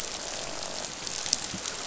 {"label": "biophony, croak", "recorder": "SoundTrap 500"}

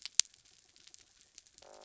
{"label": "anthrophony, mechanical", "recorder": "SoundTrap 300"}
{"label": "biophony", "recorder": "SoundTrap 300"}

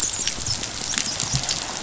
{"label": "biophony, dolphin", "recorder": "SoundTrap 500"}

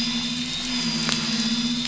{"label": "anthrophony, boat engine", "recorder": "SoundTrap 500"}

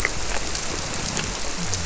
{"label": "biophony", "recorder": "SoundTrap 300"}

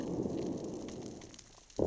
{"label": "biophony, growl", "recorder": "SoundTrap 600 or HydroMoth"}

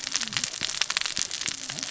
{"label": "biophony, cascading saw", "recorder": "SoundTrap 600 or HydroMoth"}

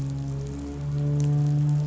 {"label": "anthrophony, boat engine", "recorder": "SoundTrap 500"}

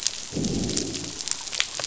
{"label": "biophony, growl", "recorder": "SoundTrap 500"}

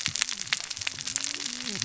{"label": "biophony, cascading saw", "recorder": "SoundTrap 600 or HydroMoth"}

